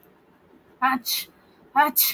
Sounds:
Sneeze